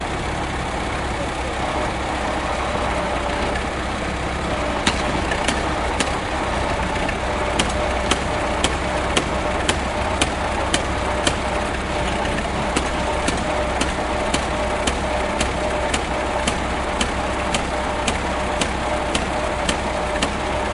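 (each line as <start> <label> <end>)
0.0 The sound of a tractor engine. 20.7
4.8 A pneumatic hammer operating. 6.2
7.4 A pneumatic hammer operating. 11.4
12.7 A pneumatic hammer operating. 20.4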